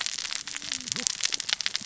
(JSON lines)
{"label": "biophony, cascading saw", "recorder": "SoundTrap 600 or HydroMoth"}